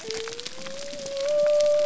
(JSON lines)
{"label": "biophony", "recorder": "SoundTrap 300"}